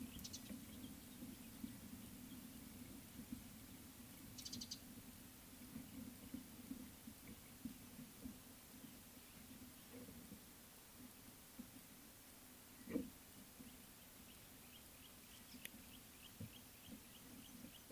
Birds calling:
Beautiful Sunbird (Cinnyris pulchellus)

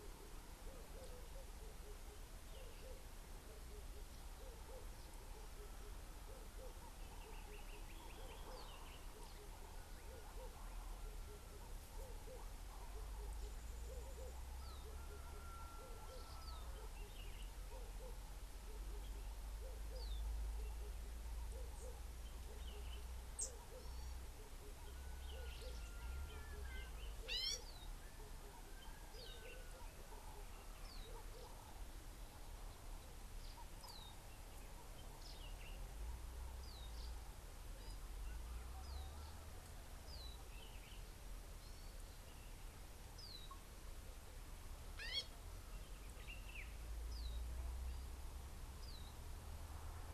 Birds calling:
Red-eyed Dove (Streptopelia semitorquata), Gray-backed Camaroptera (Camaroptera brevicaudata), Common Bulbul (Pycnonotus barbatus)

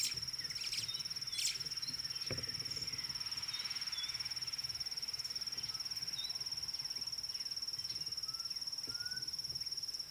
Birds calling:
White-browed Sparrow-Weaver (Plocepasser mahali), Red-backed Scrub-Robin (Cercotrichas leucophrys)

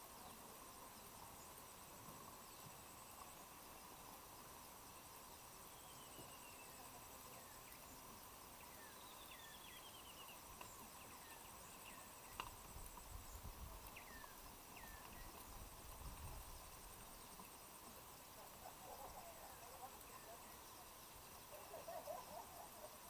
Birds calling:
Spectacled Weaver (Ploceus ocularis), African Emerald Cuckoo (Chrysococcyx cupreus)

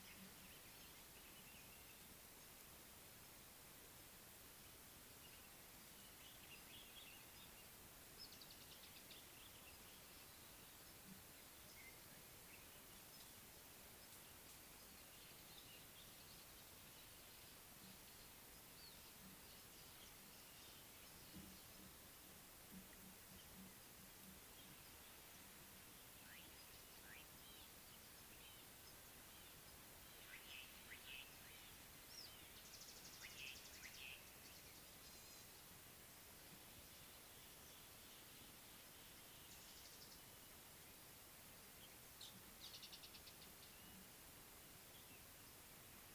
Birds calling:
Speckled Mousebird (Colius striatus), Slate-colored Boubou (Laniarius funebris), Variable Sunbird (Cinnyris venustus)

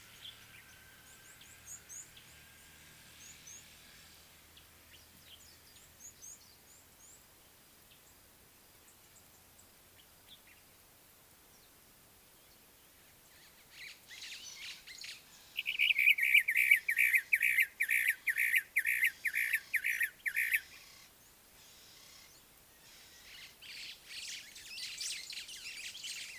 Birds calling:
White-browed Sparrow-Weaver (Plocepasser mahali), Brown-crowned Tchagra (Tchagra australis), Ring-necked Dove (Streptopelia capicola), Red-cheeked Cordonbleu (Uraeginthus bengalus)

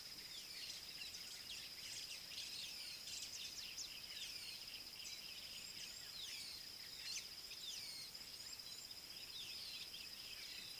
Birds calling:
Rufous Chatterer (Argya rubiginosa)

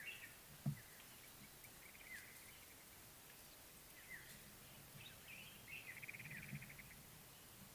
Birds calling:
African Thrush (Turdus pelios)

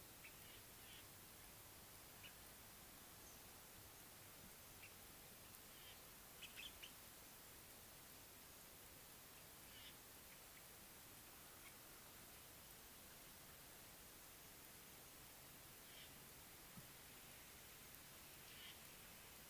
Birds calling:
Common Bulbul (Pycnonotus barbatus)

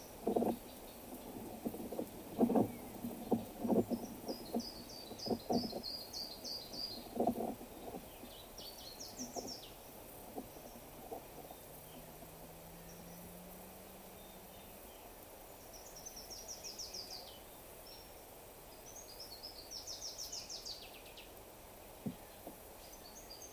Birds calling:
Cinnamon-chested Bee-eater (Merops oreobates), Waller's Starling (Onychognathus walleri), Brown Woodland-Warbler (Phylloscopus umbrovirens)

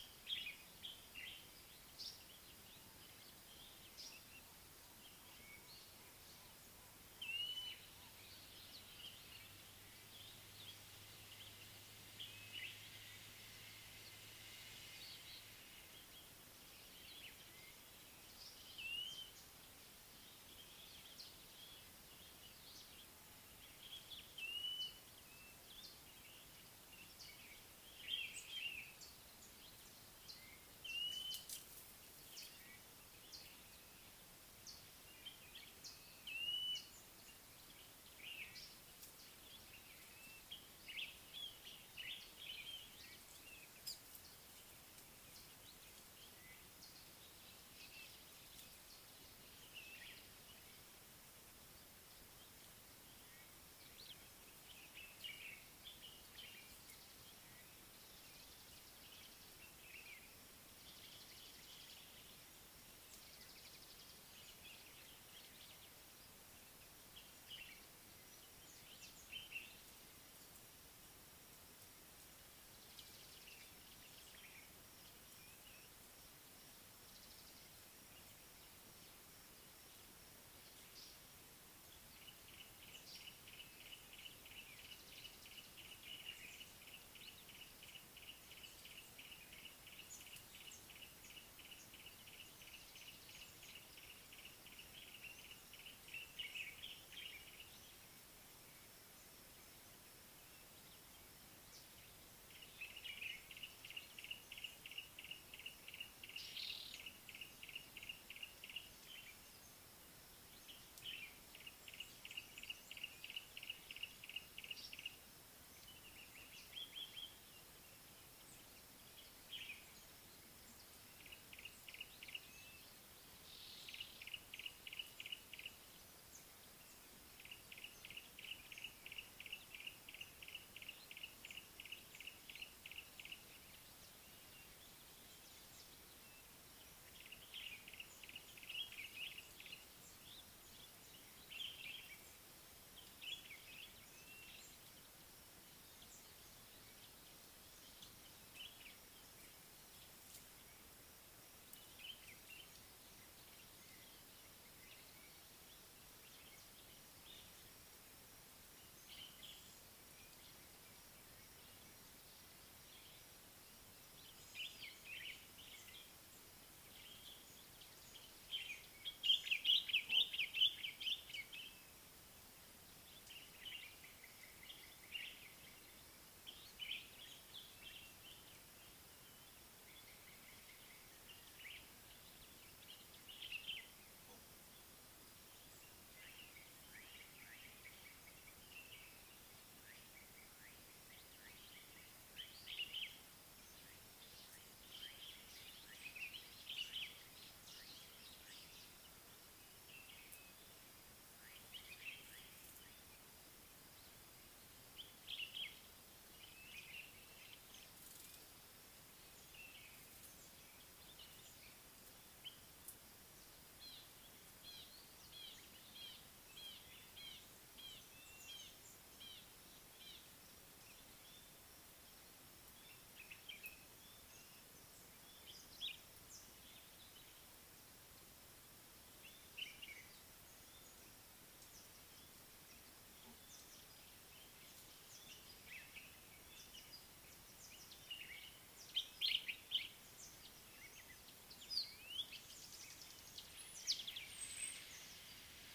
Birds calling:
Blue-naped Mousebird (Urocolius macrourus), Slate-colored Boubou (Laniarius funebris), Yellow-breasted Apalis (Apalis flavida), Baglafecht Weaver (Ploceus baglafecht), African Paradise-Flycatcher (Terpsiphone viridis), White-browed Robin-Chat (Cossypha heuglini), Red-fronted Barbet (Tricholaema diademata), White-crested Turaco (Tauraco leucolophus), Common Bulbul (Pycnonotus barbatus)

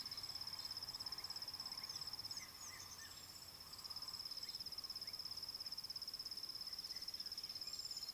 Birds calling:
Rattling Cisticola (Cisticola chiniana)

